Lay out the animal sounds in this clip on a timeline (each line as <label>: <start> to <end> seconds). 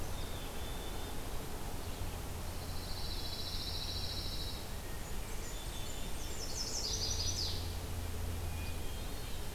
Black-capped Chickadee (Poecile atricapillus): 0.0 to 1.2 seconds
Pine Warbler (Setophaga pinus): 2.4 to 4.7 seconds
Eastern Wood-Pewee (Contopus virens): 2.7 to 4.1 seconds
Blackburnian Warbler (Setophaga fusca): 4.9 to 6.5 seconds
Black-capped Chickadee (Poecile atricapillus): 5.2 to 7.2 seconds
Chestnut-sided Warbler (Setophaga pensylvanica): 6.2 to 7.7 seconds
Hermit Thrush (Catharus guttatus): 8.2 to 9.5 seconds